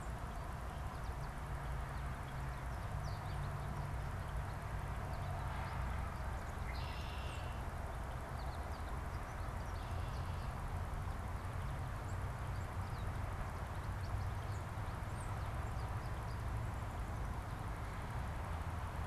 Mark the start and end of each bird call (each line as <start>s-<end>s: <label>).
0.0s-16.7s: American Goldfinch (Spinus tristis)
6.5s-7.8s: Red-winged Blackbird (Agelaius phoeniceus)
7.2s-7.4s: Tufted Titmouse (Baeolophus bicolor)
9.6s-10.6s: Red-winged Blackbird (Agelaius phoeniceus)
15.1s-15.4s: Tufted Titmouse (Baeolophus bicolor)